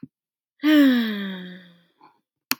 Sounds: Sigh